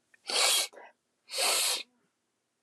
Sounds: Sniff